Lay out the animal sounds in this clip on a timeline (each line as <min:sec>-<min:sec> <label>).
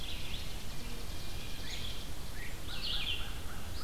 0:00.0-0:00.5 Red-eyed Vireo (Vireo olivaceus)
0:00.0-0:02.1 Chipping Sparrow (Spizella passerina)
0:01.5-0:03.8 Red-eyed Vireo (Vireo olivaceus)
0:01.6-0:02.6 Great Crested Flycatcher (Myiarchus crinitus)
0:02.6-0:03.8 American Crow (Corvus brachyrhynchos)